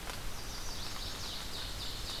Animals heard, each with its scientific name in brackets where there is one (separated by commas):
Ovenbird (Seiurus aurocapilla), Chestnut-sided Warbler (Setophaga pensylvanica)